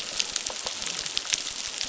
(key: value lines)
label: biophony, crackle
recorder: SoundTrap 600